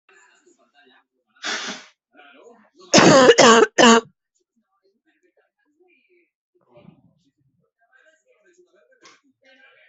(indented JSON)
{
  "expert_labels": [
    {
      "quality": "ok",
      "cough_type": "dry",
      "dyspnea": false,
      "wheezing": false,
      "stridor": false,
      "choking": false,
      "congestion": false,
      "nothing": true,
      "diagnosis": "COVID-19",
      "severity": "mild"
    }
  ],
  "age": 33,
  "gender": "female",
  "respiratory_condition": true,
  "fever_muscle_pain": false,
  "status": "symptomatic"
}